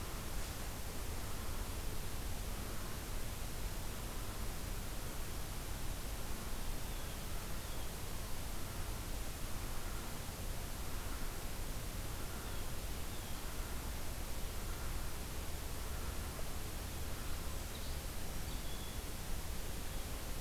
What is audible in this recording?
Blue Jay, Song Sparrow